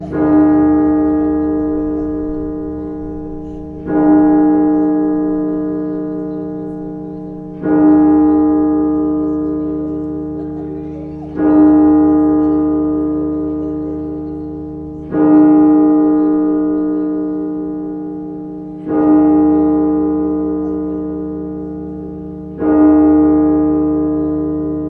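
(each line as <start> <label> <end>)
0.0 A church bell rings repeatedly, partially fading between each gong. 24.9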